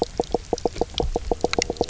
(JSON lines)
{"label": "biophony, knock croak", "recorder": "SoundTrap 300"}